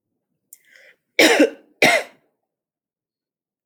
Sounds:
Cough